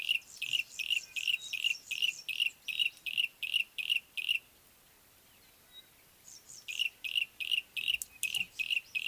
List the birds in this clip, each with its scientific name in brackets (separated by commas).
Yellow-breasted Apalis (Apalis flavida), Pale Prinia (Prinia somalica)